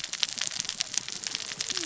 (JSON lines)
{"label": "biophony, cascading saw", "recorder": "SoundTrap 600 or HydroMoth"}